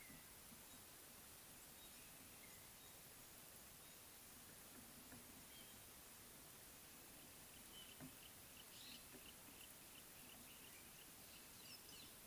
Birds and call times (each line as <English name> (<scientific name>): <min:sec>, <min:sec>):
Yellow-breasted Apalis (Apalis flavida): 0:09.6